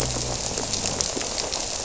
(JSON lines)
{"label": "biophony", "recorder": "SoundTrap 300"}